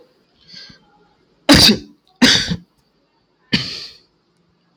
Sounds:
Sneeze